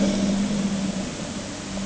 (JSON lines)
{"label": "anthrophony, boat engine", "recorder": "HydroMoth"}